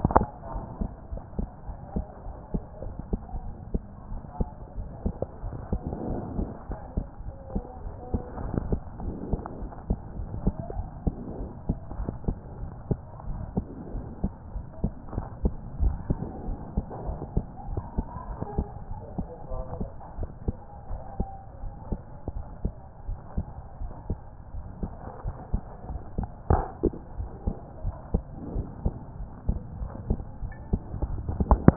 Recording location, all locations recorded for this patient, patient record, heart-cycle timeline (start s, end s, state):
pulmonary valve (PV)
aortic valve (AV)+pulmonary valve (PV)+tricuspid valve (TV)+mitral valve (MV)
#Age: Child
#Sex: Female
#Height: 128.0 cm
#Weight: 22.3 kg
#Pregnancy status: False
#Murmur: Absent
#Murmur locations: nan
#Most audible location: nan
#Systolic murmur timing: nan
#Systolic murmur shape: nan
#Systolic murmur grading: nan
#Systolic murmur pitch: nan
#Systolic murmur quality: nan
#Diastolic murmur timing: nan
#Diastolic murmur shape: nan
#Diastolic murmur grading: nan
#Diastolic murmur pitch: nan
#Diastolic murmur quality: nan
#Outcome: Normal
#Campaign: 2014 screening campaign
0.00	0.38	unannotated
0.38	0.54	diastole
0.54	0.64	S1
0.64	0.80	systole
0.80	0.90	S2
0.90	1.12	diastole
1.12	1.22	S1
1.22	1.38	systole
1.38	1.48	S2
1.48	1.68	diastole
1.68	1.78	S1
1.78	1.94	systole
1.94	2.06	S2
2.06	2.28	diastole
2.28	2.36	S1
2.36	2.52	systole
2.52	2.62	S2
2.62	2.84	diastole
2.84	2.96	S1
2.96	3.10	systole
3.10	3.14	S2
3.14	3.36	diastole
3.36	3.54	S1
3.54	3.72	systole
3.72	3.80	S2
3.80	4.12	diastole
4.12	4.22	S1
4.22	4.38	systole
4.38	4.46	S2
4.46	4.78	diastole
4.78	4.88	S1
4.88	5.04	systole
5.04	5.14	S2
5.14	5.44	diastole
5.44	5.56	S1
5.56	5.70	systole
5.70	5.80	S2
5.80	6.08	diastole
6.08	6.22	S1
6.22	6.36	systole
6.36	6.50	S2
6.50	6.70	diastole
6.70	6.80	S1
6.80	6.96	systole
6.96	7.06	S2
7.06	7.26	diastole
7.26	7.36	S1
7.36	7.54	systole
7.54	7.64	S2
7.64	7.84	diastole
7.84	7.94	S1
7.94	8.12	systole
8.12	8.20	S2
8.20	8.40	diastole
8.40	8.54	S1
8.54	8.70	systole
8.70	8.78	S2
8.78	9.02	diastole
9.02	9.14	S1
9.14	9.30	systole
9.30	9.40	S2
9.40	9.60	diastole
9.60	9.72	S1
9.72	9.88	systole
9.88	9.98	S2
9.98	10.18	diastole
10.18	10.30	S1
10.30	10.44	systole
10.44	10.52	S2
10.52	10.76	diastole
10.76	10.88	S1
10.88	11.04	systole
11.04	11.14	S2
11.14	11.40	diastole
11.40	11.50	S1
11.50	11.68	systole
11.68	11.74	S2
11.74	11.98	diastole
11.98	12.10	S1
12.10	12.26	systole
12.26	12.36	S2
12.36	12.60	diastole
12.60	12.72	S1
12.72	12.88	systole
12.88	12.98	S2
12.98	13.28	diastole
13.28	13.40	S1
13.40	13.56	systole
13.56	13.66	S2
13.66	13.94	diastole
13.94	14.06	S1
14.06	14.22	systole
14.22	14.32	S2
14.32	14.54	diastole
14.54	14.64	S1
14.64	14.82	systole
14.82	14.92	S2
14.92	15.14	diastole
15.14	15.26	S1
15.26	15.42	systole
15.42	15.54	S2
15.54	15.80	diastole
15.80	15.98	S1
15.98	16.08	systole
16.08	16.18	S2
16.18	16.46	diastole
16.46	16.58	S1
16.58	16.76	systole
16.76	16.84	S2
16.84	17.06	diastole
17.06	17.18	S1
17.18	17.34	systole
17.34	17.46	S2
17.46	17.70	diastole
17.70	17.82	S1
17.82	17.96	systole
17.96	18.06	S2
18.06	18.28	diastole
18.28	18.38	S1
18.38	18.56	systole
18.56	18.68	S2
18.68	18.90	diastole
18.90	19.02	S1
19.02	19.18	systole
19.18	19.26	S2
19.26	19.52	diastole
19.52	19.64	S1
19.64	19.78	systole
19.78	19.88	S2
19.88	20.18	diastole
20.18	20.30	S1
20.30	20.46	systole
20.46	20.56	S2
20.56	20.90	diastole
20.90	21.02	S1
21.02	21.18	systole
21.18	21.28	S2
21.28	21.62	diastole
21.62	21.74	S1
21.74	21.90	systole
21.90	22.00	S2
22.00	22.34	diastole
22.34	22.44	S1
22.44	22.62	systole
22.62	22.72	S2
22.72	23.08	diastole
23.08	23.18	S1
23.18	23.36	systole
23.36	23.46	S2
23.46	23.80	diastole
23.80	23.92	S1
23.92	24.08	systole
24.08	24.18	S2
24.18	24.54	diastole
24.54	24.64	S1
24.64	24.82	systole
24.82	24.90	S2
24.90	25.24	diastole
25.24	25.36	S1
25.36	25.52	systole
25.52	25.62	S2
25.62	25.90	diastole
25.90	26.00	S1
26.00	26.18	systole
26.18	26.28	S2
26.28	26.50	diastole
26.50	26.64	S1
26.64	26.82	systole
26.82	26.92	S2
26.92	27.18	diastole
27.18	27.30	S1
27.30	27.46	systole
27.46	27.56	S2
27.56	27.84	diastole
27.84	27.94	S1
27.94	28.12	systole
28.12	28.22	S2
28.22	28.54	diastole
28.54	28.66	S1
28.66	28.84	systole
28.84	28.96	S2
28.96	29.20	diastole
29.20	29.30	S1
29.30	29.48	systole
29.48	29.60	S2
29.60	29.80	diastole
29.80	29.90	S1
29.90	30.08	systole
30.08	30.22	S2
30.22	30.42	diastole
30.42	30.52	S1
30.52	30.69	systole
30.69	31.76	unannotated